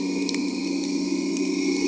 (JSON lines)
{"label": "anthrophony, boat engine", "recorder": "HydroMoth"}